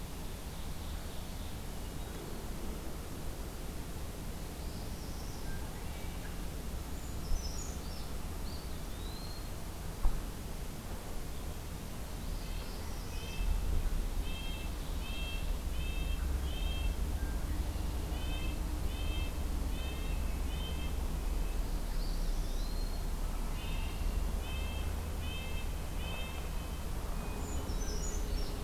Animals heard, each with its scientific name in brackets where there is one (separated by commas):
Brown Creeper (Certhia americana), Hermit Thrush (Catharus guttatus), Red-breasted Nuthatch (Sitta canadensis), Eastern Wood-Pewee (Contopus virens), Ovenbird (Seiurus aurocapilla), Red-winged Blackbird (Agelaius phoeniceus), Northern Parula (Setophaga americana)